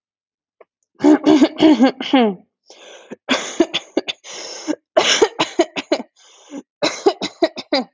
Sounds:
Laughter